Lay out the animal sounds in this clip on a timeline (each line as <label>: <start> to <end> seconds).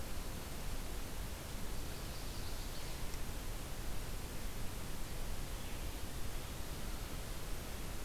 Chestnut-sided Warbler (Setophaga pensylvanica): 1.8 to 3.0 seconds